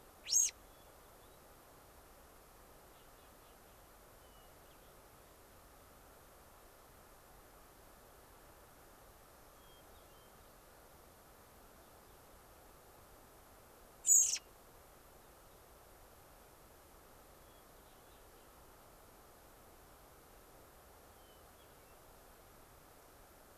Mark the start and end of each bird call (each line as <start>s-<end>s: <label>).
0.2s-0.5s: American Robin (Turdus migratorius)
0.5s-1.3s: Hermit Thrush (Catharus guttatus)
4.1s-4.9s: Hermit Thrush (Catharus guttatus)
9.5s-10.3s: Hermit Thrush (Catharus guttatus)
14.0s-14.4s: American Robin (Turdus migratorius)
17.3s-17.8s: Hermit Thrush (Catharus guttatus)
21.1s-21.9s: Hermit Thrush (Catharus guttatus)